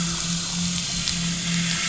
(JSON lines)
{"label": "anthrophony, boat engine", "recorder": "SoundTrap 500"}